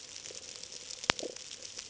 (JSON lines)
{"label": "ambient", "recorder": "HydroMoth"}